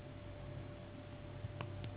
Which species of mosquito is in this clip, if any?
Anopheles gambiae s.s.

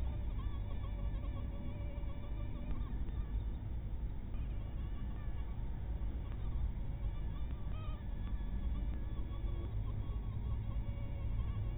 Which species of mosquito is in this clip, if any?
mosquito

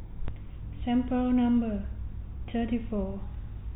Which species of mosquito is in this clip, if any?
no mosquito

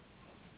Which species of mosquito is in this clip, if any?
Anopheles gambiae s.s.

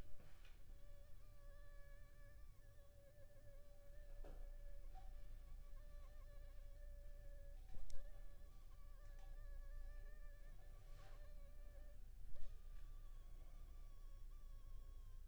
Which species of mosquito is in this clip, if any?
Anopheles funestus s.s.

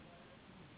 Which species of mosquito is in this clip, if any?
Anopheles gambiae s.s.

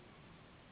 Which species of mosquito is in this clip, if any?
Anopheles gambiae s.s.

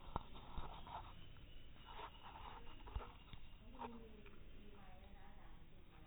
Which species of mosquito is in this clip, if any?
no mosquito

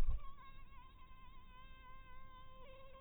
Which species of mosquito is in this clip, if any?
mosquito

